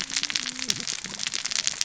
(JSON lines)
{"label": "biophony, cascading saw", "recorder": "SoundTrap 600 or HydroMoth"}